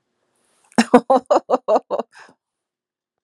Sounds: Laughter